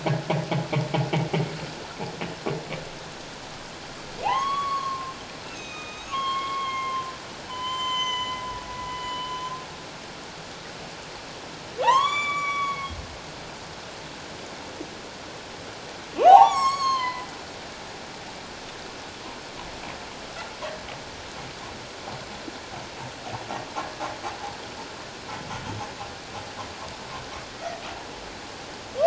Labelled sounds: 4.2	8.4	humpback whale, 0.78 to 7.2 kHz
8.9	9.3	humpback whale, 2.9 to 3.0 kHz
11.8	13.0	humpback whale, 0.78 to 7.1 kHz
16.2	17.3	humpback whale, 0.78 to 8.0 kHz

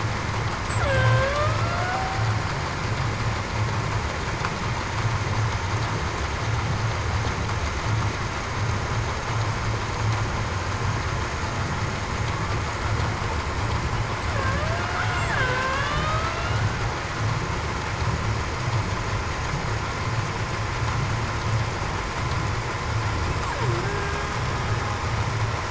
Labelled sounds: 0.8	2.2	killer whale, Bigg's (transient), 0.49 to 3.2 kHz
14.5	15.9	killer whale, Bigg's (transient), 0.52 to 1.7 kHz

